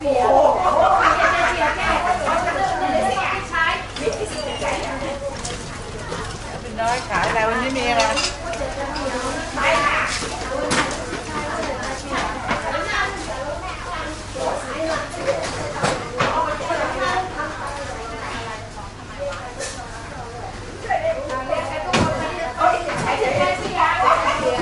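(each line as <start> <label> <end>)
0.1 A woman is speaking lively and energetically. 4.2
4.2 Someone is carrying a load that rattles amid the market noise. 6.6
6.7 A woman is speaking calmly. 7.9
8.4 People are chatting over background market noise. 17.5
17.7 People are murmuring in the background. 21.6
21.8 Heavy object falls with a muffled thud. 22.5
22.6 The woman is speaking with a snappy tone while market noise is heard in the background. 24.6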